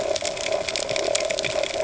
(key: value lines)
label: ambient
recorder: HydroMoth